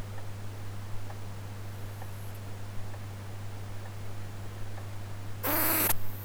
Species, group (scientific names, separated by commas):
Poecilimon sanctipauli, Orthoptera